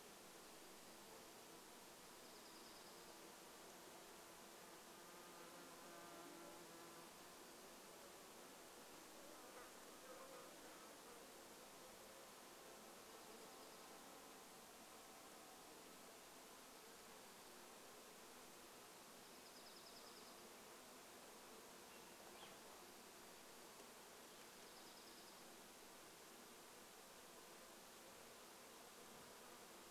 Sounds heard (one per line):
Dark-eyed Junco song
Purple Finch song
insect buzz